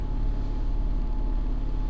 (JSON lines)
{"label": "anthrophony, boat engine", "recorder": "SoundTrap 300"}